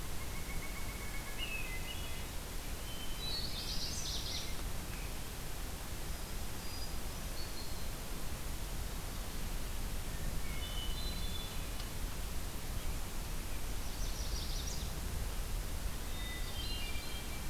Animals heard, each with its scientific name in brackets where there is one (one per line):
Hermit Thrush (Catharus guttatus)
Pileated Woodpecker (Dryocopus pileatus)
Chestnut-sided Warbler (Setophaga pensylvanica)